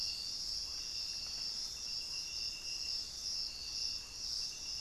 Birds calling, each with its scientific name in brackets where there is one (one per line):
unidentified bird